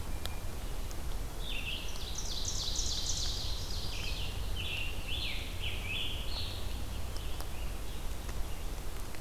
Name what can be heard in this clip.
Hermit Thrush, Red-eyed Vireo, Ovenbird, Scarlet Tanager